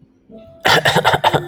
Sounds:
Cough